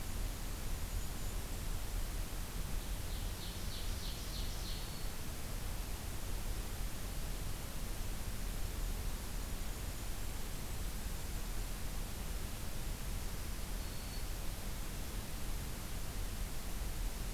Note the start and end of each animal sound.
[0.00, 2.03] Golden-crowned Kinglet (Regulus satrapa)
[2.82, 4.85] Ovenbird (Seiurus aurocapilla)
[4.58, 5.22] Black-throated Green Warbler (Setophaga virens)
[8.48, 11.38] Golden-crowned Kinglet (Regulus satrapa)
[13.24, 14.32] Black-throated Green Warbler (Setophaga virens)

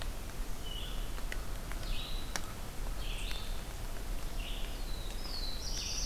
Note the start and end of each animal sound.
[0.00, 6.06] Red-eyed Vireo (Vireo olivaceus)
[4.59, 6.06] Black-throated Blue Warbler (Setophaga caerulescens)

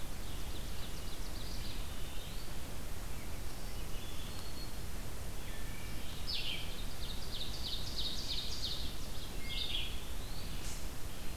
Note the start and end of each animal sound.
[0.00, 2.05] Ovenbird (Seiurus aurocapilla)
[1.22, 2.74] Eastern Wood-Pewee (Contopus virens)
[3.61, 4.84] Wood Thrush (Hylocichla mustelina)
[5.31, 6.23] Wood Thrush (Hylocichla mustelina)
[6.11, 6.81] Red-eyed Vireo (Vireo olivaceus)
[6.56, 9.16] Ovenbird (Seiurus aurocapilla)
[9.26, 10.56] Eastern Wood-Pewee (Contopus virens)
[9.31, 9.94] Red-eyed Vireo (Vireo olivaceus)

